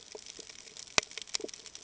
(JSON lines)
{"label": "ambient", "recorder": "HydroMoth"}